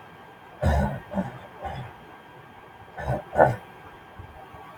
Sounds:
Throat clearing